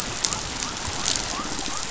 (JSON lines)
{"label": "biophony", "recorder": "SoundTrap 500"}